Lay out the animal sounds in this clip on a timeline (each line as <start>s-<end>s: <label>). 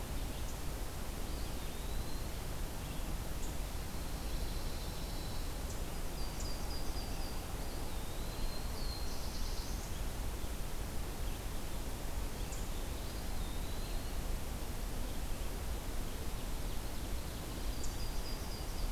1.2s-2.4s: Eastern Wood-Pewee (Contopus virens)
3.9s-5.5s: Pine Warbler (Setophaga pinus)
6.0s-7.5s: Yellow-rumped Warbler (Setophaga coronata)
7.5s-8.7s: Eastern Wood-Pewee (Contopus virens)
8.6s-10.0s: Black-throated Blue Warbler (Setophaga caerulescens)
12.4s-14.2s: Eastern Wood-Pewee (Contopus virens)
15.7s-17.7s: Ovenbird (Seiurus aurocapilla)
17.5s-18.9s: Yellow-rumped Warbler (Setophaga coronata)